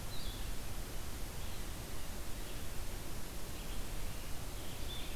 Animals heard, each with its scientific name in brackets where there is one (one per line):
Blue-headed Vireo (Vireo solitarius)